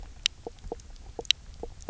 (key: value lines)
label: biophony, knock croak
recorder: SoundTrap 300